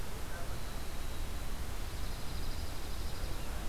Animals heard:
Winter Wren (Troglodytes hiemalis)
Dark-eyed Junco (Junco hyemalis)

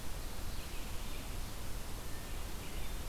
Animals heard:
Red-eyed Vireo (Vireo olivaceus)

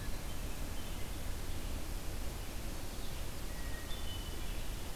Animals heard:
Red-eyed Vireo (Vireo olivaceus)
Hermit Thrush (Catharus guttatus)

